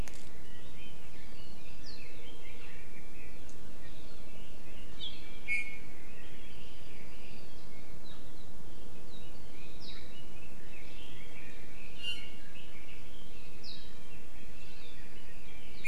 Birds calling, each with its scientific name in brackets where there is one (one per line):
Red-billed Leiothrix (Leiothrix lutea)
Iiwi (Drepanis coccinea)